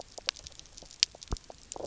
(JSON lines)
{"label": "biophony", "recorder": "SoundTrap 300"}